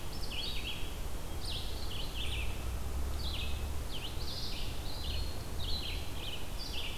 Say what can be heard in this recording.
Red-eyed Vireo, Eastern Wood-Pewee, Hermit Thrush